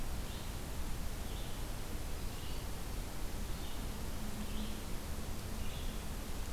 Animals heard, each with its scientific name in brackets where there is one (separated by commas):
Red-eyed Vireo (Vireo olivaceus)